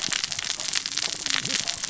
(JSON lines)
{"label": "biophony, cascading saw", "recorder": "SoundTrap 600 or HydroMoth"}